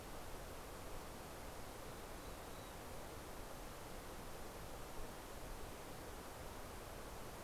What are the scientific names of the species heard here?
Poecile gambeli